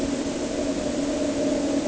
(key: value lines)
label: anthrophony, boat engine
recorder: HydroMoth